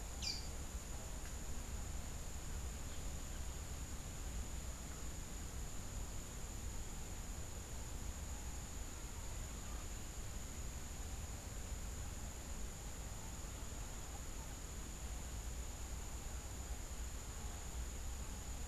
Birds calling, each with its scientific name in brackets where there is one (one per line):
unidentified bird